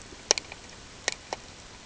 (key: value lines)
label: ambient
recorder: HydroMoth